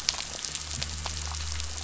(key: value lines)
label: anthrophony, boat engine
recorder: SoundTrap 500